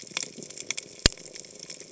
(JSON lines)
{"label": "biophony", "recorder": "HydroMoth"}